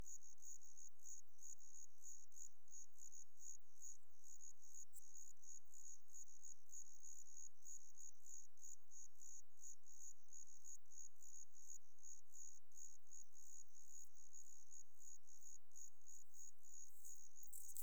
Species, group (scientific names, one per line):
Eumodicogryllus theryi
Orthoptera